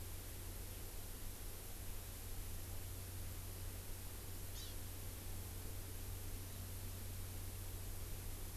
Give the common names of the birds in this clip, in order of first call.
Hawaii Amakihi